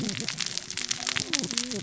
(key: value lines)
label: biophony, cascading saw
recorder: SoundTrap 600 or HydroMoth